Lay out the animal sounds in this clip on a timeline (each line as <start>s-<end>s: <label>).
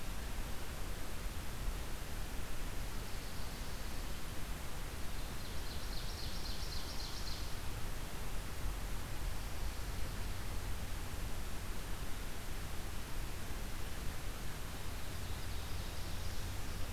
2.8s-4.2s: Swamp Sparrow (Melospiza georgiana)
5.1s-7.8s: Ovenbird (Seiurus aurocapilla)
14.9s-16.3s: Ovenbird (Seiurus aurocapilla)